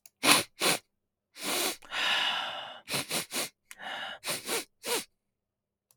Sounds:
Sniff